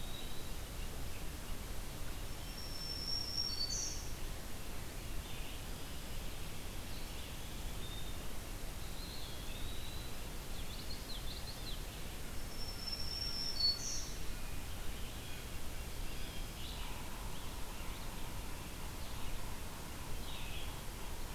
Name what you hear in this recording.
Eastern Wood-Pewee, Red-eyed Vireo, Black-throated Green Warbler, Common Yellowthroat, Blue Jay